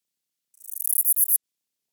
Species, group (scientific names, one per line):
Callicrania ramburii
Orthoptera